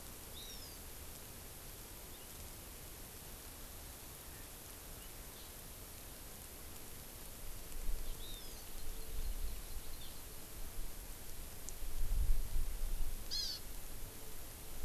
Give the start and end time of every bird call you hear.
[0.27, 0.87] Hawaiian Hawk (Buteo solitarius)
[8.17, 9.97] Hawaii Amakihi (Chlorodrepanis virens)
[13.27, 13.57] Hawaii Amakihi (Chlorodrepanis virens)

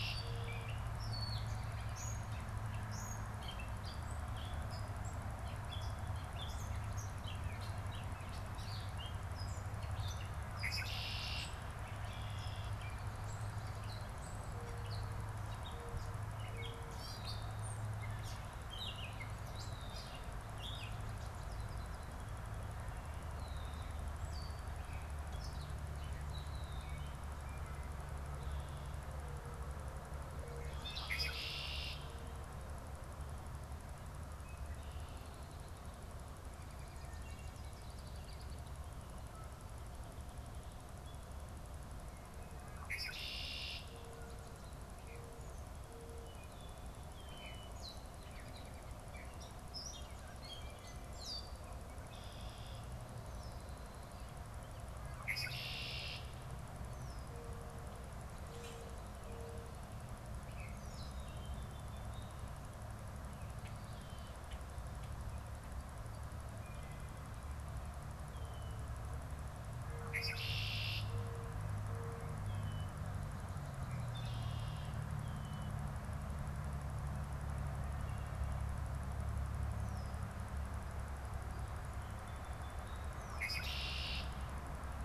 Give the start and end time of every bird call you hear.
[0.00, 0.82] Red-winged Blackbird (Agelaius phoeniceus)
[0.00, 27.22] Gray Catbird (Dumetella carolinensis)
[10.32, 12.92] Red-winged Blackbird (Agelaius phoeniceus)
[20.92, 22.92] American Goldfinch (Spinus tristis)
[30.42, 32.12] Red-winged Blackbird (Agelaius phoeniceus)
[36.72, 39.02] American Goldfinch (Spinus tristis)
[42.62, 44.02] Red-winged Blackbird (Agelaius phoeniceus)
[46.12, 51.72] Gray Catbird (Dumetella carolinensis)
[51.82, 53.92] Red-winged Blackbird (Agelaius phoeniceus)
[55.12, 56.42] Red-winged Blackbird (Agelaius phoeniceus)
[55.72, 60.02] Mourning Dove (Zenaida macroura)
[58.42, 59.02] Common Grackle (Quiscalus quiscula)
[69.62, 71.22] Red-winged Blackbird (Agelaius phoeniceus)
[73.62, 75.22] Red-winged Blackbird (Agelaius phoeniceus)
[83.12, 84.42] Red-winged Blackbird (Agelaius phoeniceus)

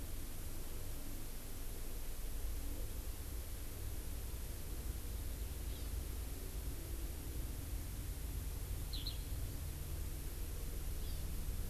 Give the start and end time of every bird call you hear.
[5.69, 5.89] Hawaii Amakihi (Chlorodrepanis virens)
[8.89, 9.19] Eurasian Skylark (Alauda arvensis)
[10.99, 11.29] Hawaii Amakihi (Chlorodrepanis virens)

